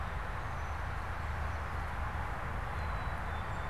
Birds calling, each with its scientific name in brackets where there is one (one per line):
Black-capped Chickadee (Poecile atricapillus)